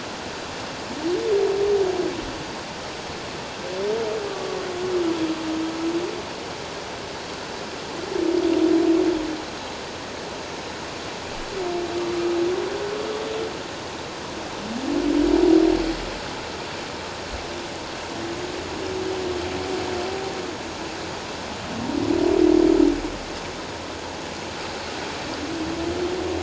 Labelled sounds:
4.3	4.6	humpback whale, 1.1 to 1.2 kHz

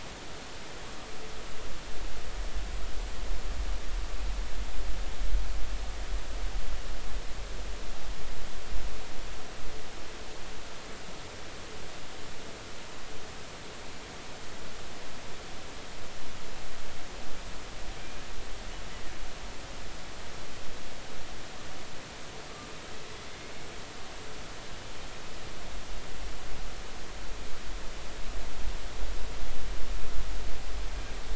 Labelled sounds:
18.0	18.2	killer whale, Bigg's (transient), 2.3 to 2.5 kHz

